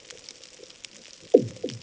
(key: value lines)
label: anthrophony, bomb
recorder: HydroMoth